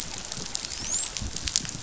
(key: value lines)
label: biophony, dolphin
recorder: SoundTrap 500